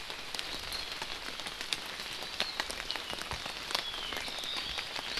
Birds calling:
Apapane (Himatione sanguinea)

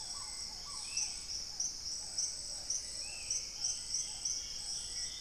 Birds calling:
Paradise Tanager (Tangara chilensis)
Spot-winged Antshrike (Pygiptila stellaris)
Plumbeous Pigeon (Patagioenas plumbea)
Dusky-throated Antshrike (Thamnomanes ardesiacus)
Hauxwell's Thrush (Turdus hauxwelli)
Black-tailed Trogon (Trogon melanurus)

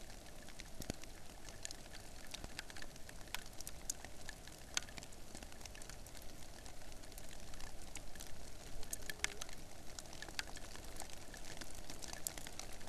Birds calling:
Hawaiian Petrel (Pterodroma sandwichensis)

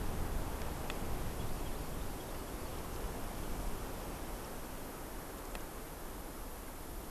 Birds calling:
Hawaii Amakihi (Chlorodrepanis virens)

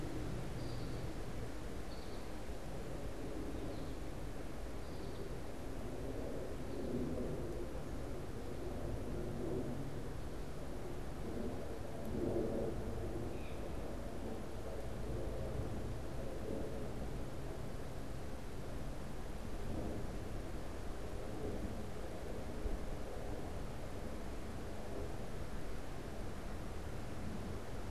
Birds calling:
Blue Jay (Cyanocitta cristata)
American Goldfinch (Spinus tristis)

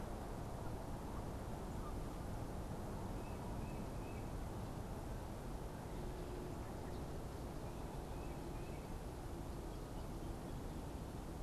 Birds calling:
Tufted Titmouse (Baeolophus bicolor)
Canada Goose (Branta canadensis)

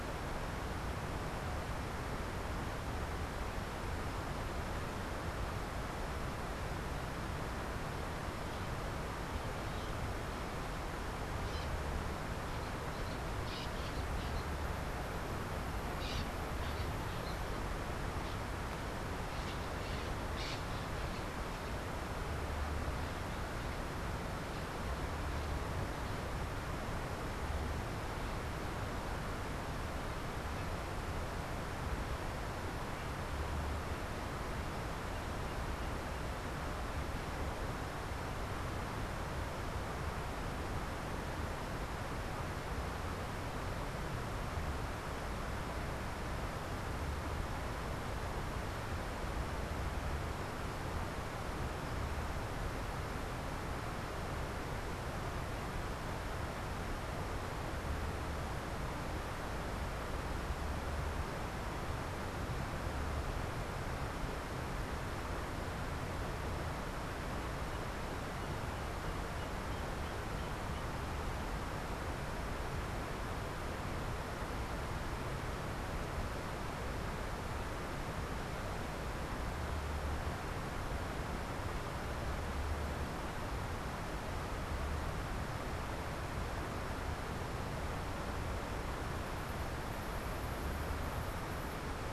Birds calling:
Bronze-winged Parrot (Pionus chalcopterus)

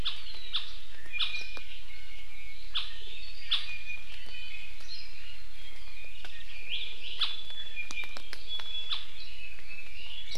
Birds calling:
Iiwi (Drepanis coccinea)

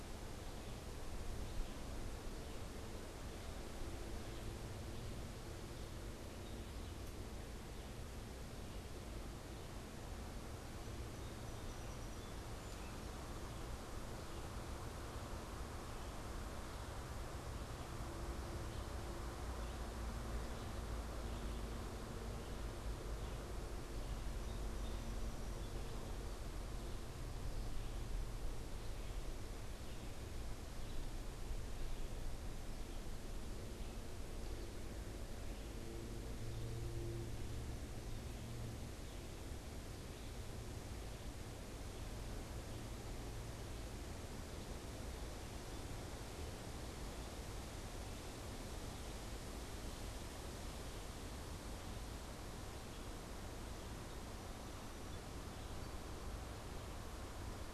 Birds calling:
Song Sparrow (Melospiza melodia)
Red-eyed Vireo (Vireo olivaceus)

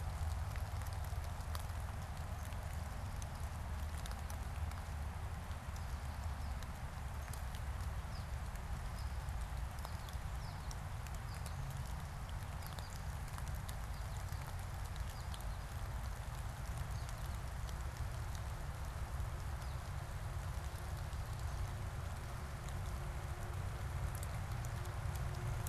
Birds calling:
American Goldfinch (Spinus tristis)

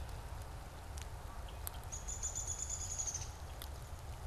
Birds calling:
Red-winged Blackbird (Agelaius phoeniceus)
Downy Woodpecker (Dryobates pubescens)

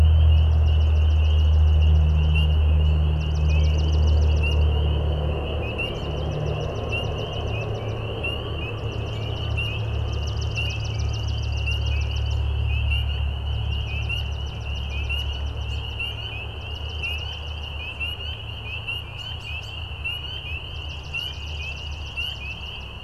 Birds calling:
Swamp Sparrow (Melospiza georgiana)
American Robin (Turdus migratorius)

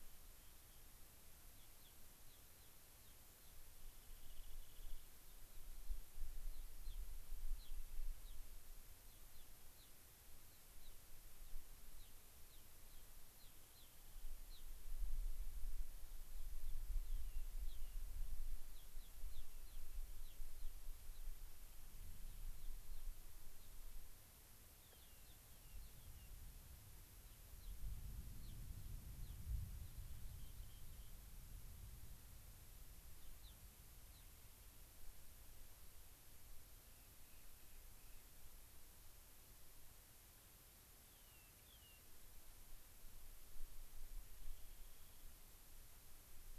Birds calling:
Rock Wren (Salpinctes obsoletus)
Gray-crowned Rosy-Finch (Leucosticte tephrocotis)
American Pipit (Anthus rubescens)

